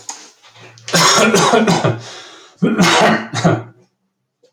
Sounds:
Cough